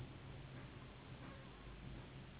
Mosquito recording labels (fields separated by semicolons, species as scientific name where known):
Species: Anopheles gambiae s.s.; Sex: female; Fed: unfed; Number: one; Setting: insect culture